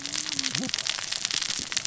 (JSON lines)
{"label": "biophony, cascading saw", "recorder": "SoundTrap 600 or HydroMoth"}